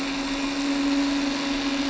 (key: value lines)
label: anthrophony, boat engine
recorder: SoundTrap 300